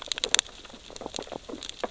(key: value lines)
label: biophony, sea urchins (Echinidae)
recorder: SoundTrap 600 or HydroMoth